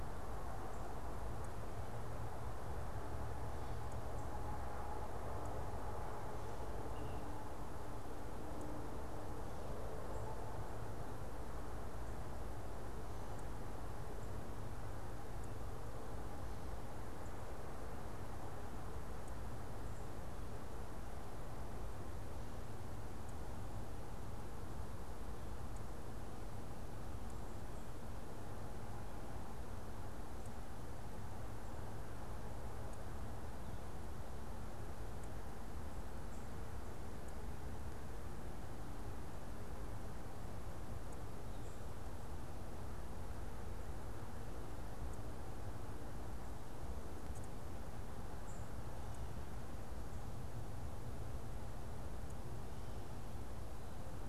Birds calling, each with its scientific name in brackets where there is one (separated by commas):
unidentified bird